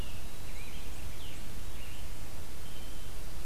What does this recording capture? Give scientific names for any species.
Piranga olivacea, Setophaga virens, Catharus guttatus